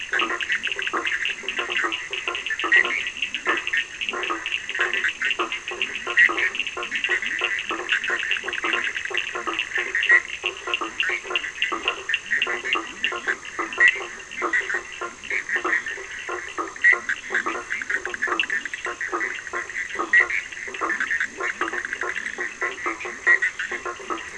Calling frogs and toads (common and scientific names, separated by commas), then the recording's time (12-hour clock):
Cochran's lime tree frog (Sphaenorhynchus surdus), Bischoff's tree frog (Boana bischoffi), blacksmith tree frog (Boana faber), Leptodactylus latrans
10:15pm